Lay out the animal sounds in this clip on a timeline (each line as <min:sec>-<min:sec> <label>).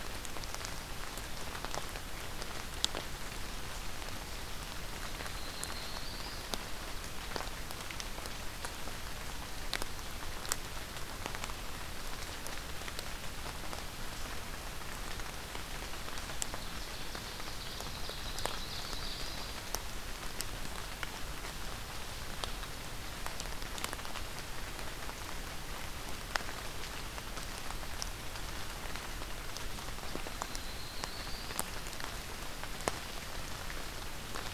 0:04.9-0:06.5 Yellow-rumped Warbler (Setophaga coronata)
0:16.4-0:19.6 Ovenbird (Seiurus aurocapilla)
0:17.9-0:19.6 Yellow-rumped Warbler (Setophaga coronata)
0:30.2-0:31.7 Yellow-rumped Warbler (Setophaga coronata)